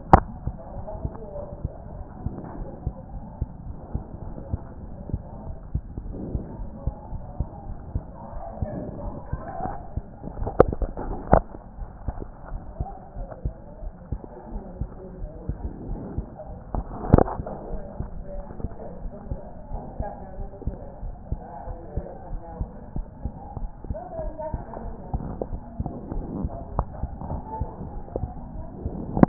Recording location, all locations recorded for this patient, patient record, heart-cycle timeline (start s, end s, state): aortic valve (AV)
aortic valve (AV)+pulmonary valve (PV)+tricuspid valve (TV)+mitral valve (MV)
#Age: Child
#Sex: Female
#Height: 128.0 cm
#Weight: 22.3 kg
#Pregnancy status: False
#Murmur: Absent
#Murmur locations: nan
#Most audible location: nan
#Systolic murmur timing: nan
#Systolic murmur shape: nan
#Systolic murmur grading: nan
#Systolic murmur pitch: nan
#Systolic murmur quality: nan
#Diastolic murmur timing: nan
#Diastolic murmur shape: nan
#Diastolic murmur grading: nan
#Diastolic murmur pitch: nan
#Diastolic murmur quality: nan
#Outcome: Normal
#Campaign: 2014 screening campaign
0.00	17.98	unannotated
17.98	18.08	S2
18.08	18.34	diastole
18.34	18.44	S1
18.44	18.62	systole
18.62	18.72	S2
18.72	19.02	diastole
19.02	19.12	S1
19.12	19.30	systole
19.30	19.38	S2
19.38	19.72	diastole
19.72	19.82	S1
19.82	19.98	systole
19.98	20.08	S2
20.08	20.38	diastole
20.38	20.50	S1
20.50	20.66	systole
20.66	20.76	S2
20.76	21.02	diastole
21.02	21.14	S1
21.14	21.30	systole
21.30	21.40	S2
21.40	21.68	diastole
21.68	21.78	S1
21.78	21.96	systole
21.96	22.04	S2
22.04	22.30	diastole
22.30	22.42	S1
22.42	22.58	systole
22.58	22.68	S2
22.68	22.96	diastole
22.96	23.06	S1
23.06	23.24	systole
23.24	23.32	S2
23.32	23.60	diastole
23.60	23.70	S1
23.70	23.88	systole
23.88	23.98	S2
23.98	24.22	diastole
24.22	24.34	S1
24.34	24.52	systole
24.52	24.62	S2
24.62	24.84	diastole
24.84	24.96	S1
24.96	25.12	systole
25.12	25.24	S2
25.24	25.50	diastole
25.50	25.62	S1
25.62	25.78	systole
25.78	25.90	S2
25.90	26.05	diastole
26.05	29.28	unannotated